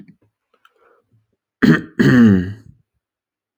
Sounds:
Throat clearing